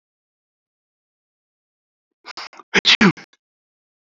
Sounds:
Sneeze